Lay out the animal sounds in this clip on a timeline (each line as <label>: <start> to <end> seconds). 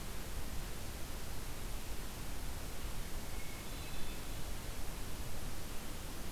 Hermit Thrush (Catharus guttatus): 3.1 to 4.5 seconds